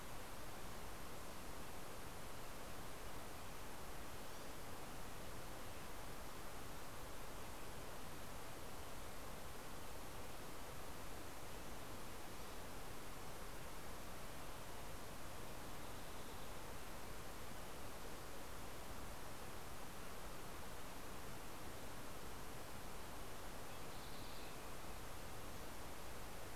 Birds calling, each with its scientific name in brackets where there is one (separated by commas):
Green-tailed Towhee (Pipilo chlorurus)